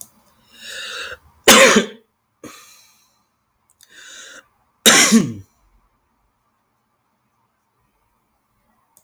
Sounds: Sneeze